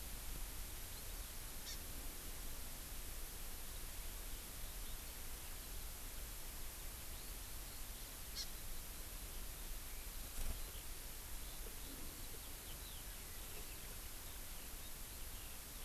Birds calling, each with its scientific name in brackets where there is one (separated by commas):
Eurasian Skylark (Alauda arvensis), Hawaii Amakihi (Chlorodrepanis virens)